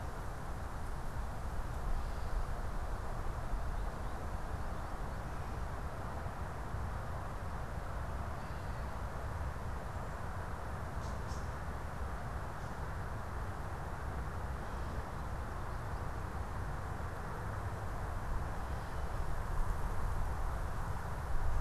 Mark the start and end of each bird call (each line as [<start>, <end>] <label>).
[1.74, 2.64] Gray Catbird (Dumetella carolinensis)
[8.24, 8.84] Gray Catbird (Dumetella carolinensis)
[10.84, 11.64] unidentified bird